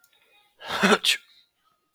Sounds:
Sneeze